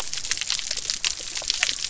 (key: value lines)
label: biophony
recorder: SoundTrap 300